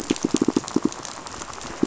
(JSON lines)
{"label": "biophony, pulse", "recorder": "SoundTrap 500"}